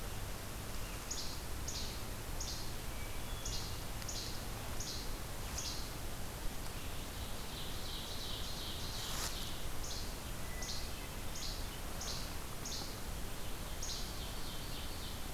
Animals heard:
Hermit Thrush (Catharus guttatus), Least Flycatcher (Empidonax minimus), Ovenbird (Seiurus aurocapilla)

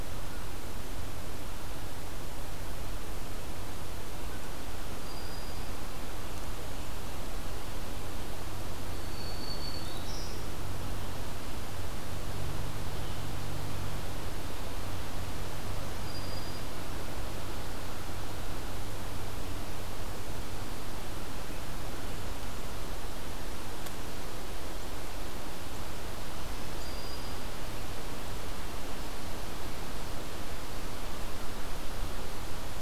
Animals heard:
Black-throated Green Warbler (Setophaga virens)

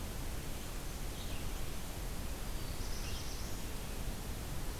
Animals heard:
Red-eyed Vireo (Vireo olivaceus), Black-throated Blue Warbler (Setophaga caerulescens)

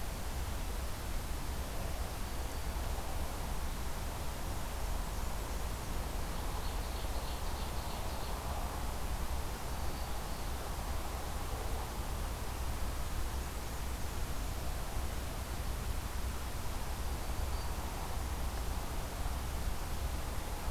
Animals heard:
Black-throated Green Warbler (Setophaga virens), Ovenbird (Seiurus aurocapilla), Black-and-white Warbler (Mniotilta varia)

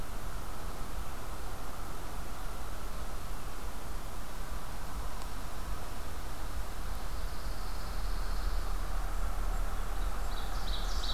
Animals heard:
Ovenbird (Seiurus aurocapilla), Pine Warbler (Setophaga pinus)

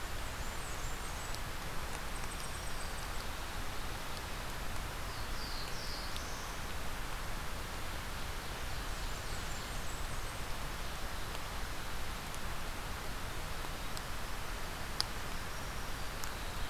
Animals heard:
Black-capped Chickadee (Poecile atricapillus), Black-throated Blue Warbler (Setophaga caerulescens), Blackburnian Warbler (Setophaga fusca), Eastern Chipmunk (Tamias striatus), Black-throated Green Warbler (Setophaga virens)

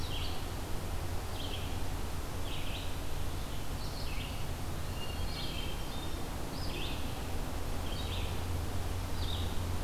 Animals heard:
Red-eyed Vireo (Vireo olivaceus), Hermit Thrush (Catharus guttatus)

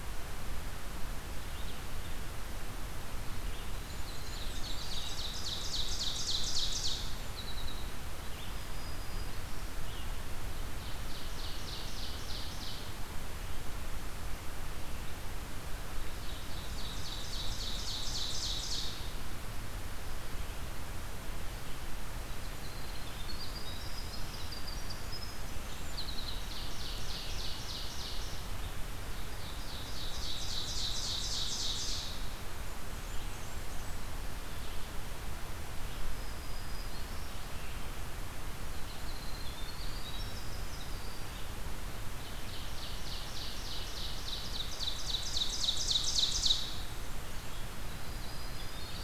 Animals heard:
Blackburnian Warbler (Setophaga fusca), Winter Wren (Troglodytes hiemalis), Red-eyed Vireo (Vireo olivaceus), Ovenbird (Seiurus aurocapilla), Black-throated Green Warbler (Setophaga virens)

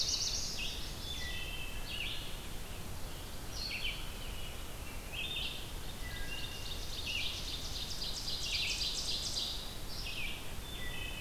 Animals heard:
Chestnut-sided Warbler (Setophaga pensylvanica), Black-throated Blue Warbler (Setophaga caerulescens), Wood Thrush (Hylocichla mustelina), Ovenbird (Seiurus aurocapilla), American Robin (Turdus migratorius), Red-eyed Vireo (Vireo olivaceus), Scarlet Tanager (Piranga olivacea)

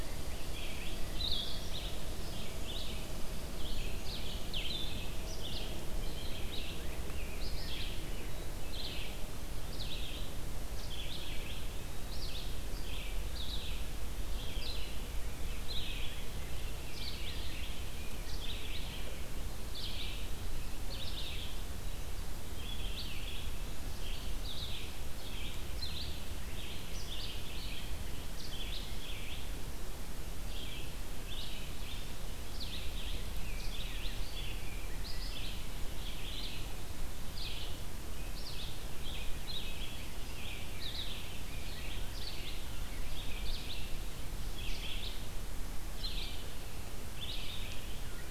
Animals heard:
Rose-breasted Grosbeak (Pheucticus ludovicianus), Eastern Wood-Pewee (Contopus virens), Red Squirrel (Tamiasciurus hudsonicus), Red-eyed Vireo (Vireo olivaceus), Blue-headed Vireo (Vireo solitarius)

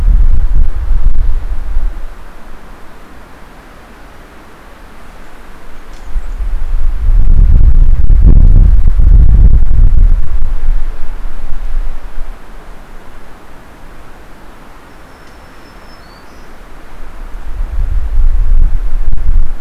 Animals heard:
Blackburnian Warbler (Setophaga fusca), Black-throated Green Warbler (Setophaga virens)

